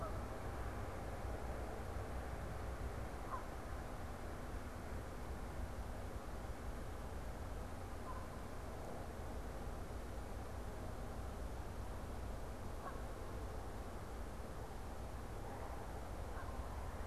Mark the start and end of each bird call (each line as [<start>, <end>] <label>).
[0.00, 3.70] Canada Goose (Branta canadensis)
[7.80, 8.50] Canada Goose (Branta canadensis)
[12.50, 13.30] Canada Goose (Branta canadensis)
[16.10, 16.80] Canada Goose (Branta canadensis)